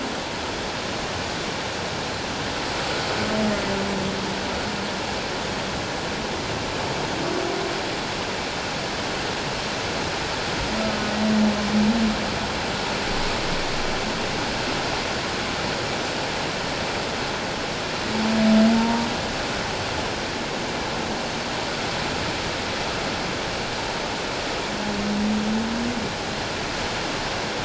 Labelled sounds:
18.7	19.1	humpback whale, 0.88 to 0.97 kHz

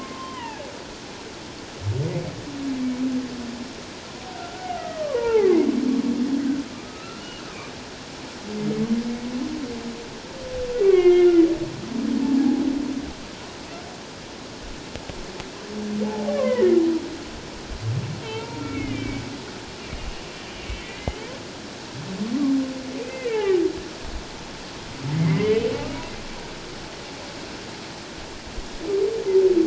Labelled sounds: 0.2	0.7	humpback whale, 0.78 to 3.2 kHz
4.3	5.5	humpback whale, 0.78 to 2.4 kHz
6.7	7.2	humpback whale, 1.2 to 1.4 kHz
10.8	11.4	humpback whale, 1.0 to 3.3 kHz
16.0	16.7	humpback whale, 0.78 to 2.4 kHz
18.2	19.2	humpback whale, 0.84 to 2.8 kHz
20.0	20.2	humpback whale, 2.8 to 2.9 kHz
20.8	21.3	humpback whale, 1.9 to 3.2 kHz
23.0	23.6	humpback whale, 1.6 to 2.7 kHz
25.2	25.6	humpback whale, 1.9 to 2.3 kHz

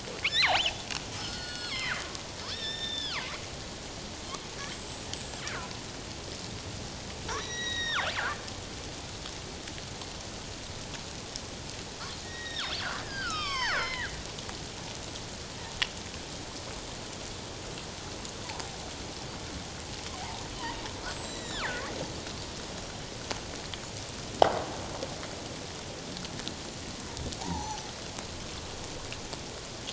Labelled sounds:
0.3	2.0	killer whale, northern resident, G clan, 0.97 to 8.0 kHz
2.5	3.3	killer whale, northern resident, G clan, 0.91 to 5.6 kHz
4.6	5.7	killer whale, northern resident, G clan, 1.2 to 8.0 kHz
7.3	8.1	killer whale, northern resident, G clan, 0.91 to 5.9 kHz
12.2	14.1	killer whale, northern resident, G clan, 0.78 to 8.0 kHz
20.1	21.7	killer whale, northern resident, G clan, 0.78 to 7.8 kHz
27.4	27.8	killer whale, northern resident, G clan, 0.78 to 6.2 kHz

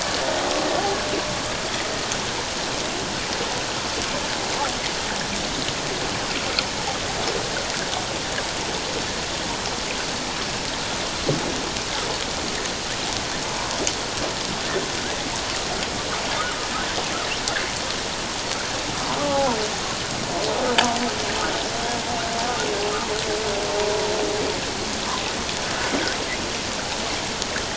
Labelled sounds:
16.4	16.7	humpback whale, 1.2 to 1.5 kHz
19.3	19.5	humpback whale, 0.78 to 0.94 kHz

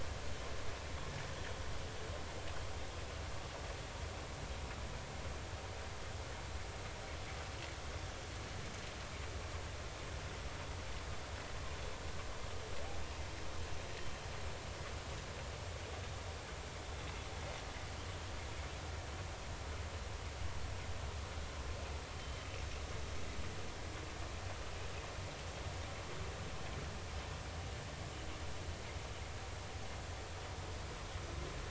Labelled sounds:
22.2	22.5	humpback whale, 3.0 to 3.2 kHz

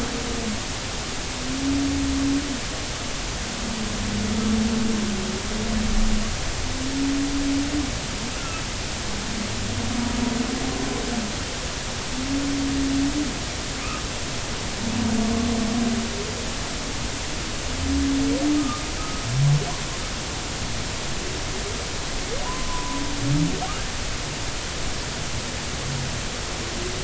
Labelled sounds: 18.6	18.8	humpback whale, 1.1 to 1.3 kHz
22.5	23.0	humpback whale, 0.90 to 1.1 kHz

